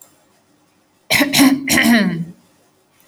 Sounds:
Throat clearing